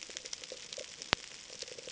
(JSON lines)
{"label": "ambient", "recorder": "HydroMoth"}